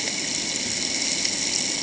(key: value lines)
label: ambient
recorder: HydroMoth